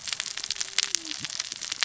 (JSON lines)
{"label": "biophony, cascading saw", "recorder": "SoundTrap 600 or HydroMoth"}